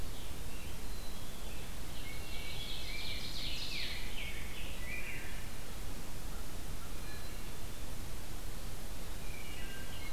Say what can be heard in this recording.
Black-capped Chickadee, Ovenbird, Rose-breasted Grosbeak, Wood Thrush